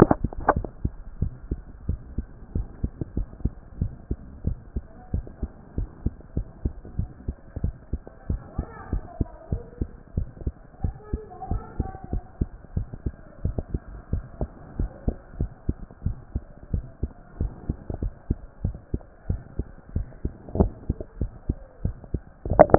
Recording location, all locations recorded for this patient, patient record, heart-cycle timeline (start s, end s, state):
mitral valve (MV)
aortic valve (AV)+pulmonary valve (PV)+tricuspid valve (TV)+mitral valve (MV)
#Age: Child
#Sex: Female
#Height: 109.0 cm
#Weight: 19.0 kg
#Pregnancy status: False
#Murmur: Present
#Murmur locations: mitral valve (MV)+pulmonary valve (PV)+tricuspid valve (TV)
#Most audible location: tricuspid valve (TV)
#Systolic murmur timing: Holosystolic
#Systolic murmur shape: Plateau
#Systolic murmur grading: I/VI
#Systolic murmur pitch: Low
#Systolic murmur quality: Harsh
#Diastolic murmur timing: nan
#Diastolic murmur shape: nan
#Diastolic murmur grading: nan
#Diastolic murmur pitch: nan
#Diastolic murmur quality: nan
#Outcome: Abnormal
#Campaign: 2014 screening campaign
0.00	1.11	unannotated
1.11	1.20	diastole
1.20	1.32	S1
1.32	1.50	systole
1.50	1.60	S2
1.60	1.88	diastole
1.88	2.00	S1
2.00	2.16	systole
2.16	2.26	S2
2.26	2.54	diastole
2.54	2.66	S1
2.66	2.82	systole
2.82	2.92	S2
2.92	3.16	diastole
3.16	3.28	S1
3.28	3.42	systole
3.42	3.52	S2
3.52	3.80	diastole
3.80	3.92	S1
3.92	4.10	systole
4.10	4.18	S2
4.18	4.44	diastole
4.44	4.58	S1
4.58	4.74	systole
4.74	4.84	S2
4.84	5.12	diastole
5.12	5.24	S1
5.24	5.42	systole
5.42	5.50	S2
5.50	5.78	diastole
5.78	5.88	S1
5.88	6.04	systole
6.04	6.14	S2
6.14	6.36	diastole
6.36	6.46	S1
6.46	6.64	systole
6.64	6.74	S2
6.74	6.98	diastole
6.98	7.10	S1
7.10	7.26	systole
7.26	7.36	S2
7.36	7.62	diastole
7.62	7.74	S1
7.74	7.92	systole
7.92	8.00	S2
8.00	8.28	diastole
8.28	8.42	S1
8.42	8.58	systole
8.58	8.66	S2
8.66	8.92	diastole
8.92	9.04	S1
9.04	9.18	systole
9.18	9.28	S2
9.28	9.50	diastole
9.50	9.62	S1
9.62	9.80	systole
9.80	9.88	S2
9.88	10.16	diastole
10.16	10.28	S1
10.28	10.44	systole
10.44	10.54	S2
10.54	10.82	diastole
10.82	10.94	S1
10.94	11.12	systole
11.12	11.22	S2
11.22	11.50	diastole
11.50	11.62	S1
11.62	11.78	systole
11.78	11.88	S2
11.88	12.12	diastole
12.12	12.24	S1
12.24	12.40	systole
12.40	12.50	S2
12.50	12.76	diastole
12.76	12.88	S1
12.88	13.04	systole
13.04	13.14	S2
13.14	13.44	diastole
13.44	13.56	S1
13.56	13.72	systole
13.72	13.80	S2
13.80	14.12	diastole
14.12	14.24	S1
14.24	14.40	systole
14.40	14.50	S2
14.50	14.78	diastole
14.78	14.90	S1
14.90	15.06	systole
15.06	15.16	S2
15.16	15.38	diastole
15.38	15.50	S1
15.50	15.68	systole
15.68	15.76	S2
15.76	16.04	diastole
16.04	16.16	S1
16.16	16.34	systole
16.34	16.44	S2
16.44	16.72	diastole
16.72	16.86	S1
16.86	17.02	systole
17.02	17.12	S2
17.12	17.40	diastole
17.40	17.52	S1
17.52	17.68	systole
17.68	17.76	S2
17.76	18.02	diastole
18.02	18.14	S1
18.14	18.28	systole
18.28	18.38	S2
18.38	18.64	diastole
18.64	18.76	S1
18.76	18.92	systole
18.92	19.02	S2
19.02	19.28	diastole
19.28	19.42	S1
19.42	19.58	systole
19.58	19.66	S2
19.66	19.94	diastole
19.94	20.08	S1
20.08	20.24	systole
20.24	20.34	S2
20.34	20.56	diastole
20.56	22.78	unannotated